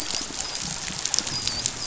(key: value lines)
label: biophony, dolphin
recorder: SoundTrap 500